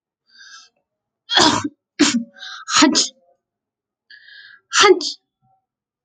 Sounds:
Sneeze